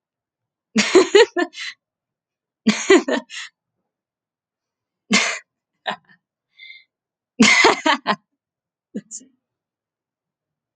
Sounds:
Laughter